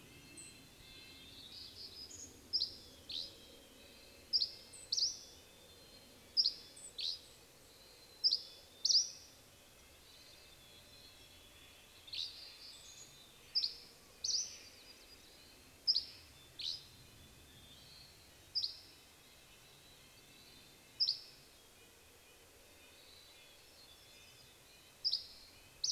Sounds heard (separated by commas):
Red-breasted Nuthatch song, Steller's Jay call, Dusky Flycatcher song, Hermit Thrush song, Mountain Chickadee song, Golden-crowned Kinglet call, warbler song, Hermit Thrush call, Dark-eyed Junco call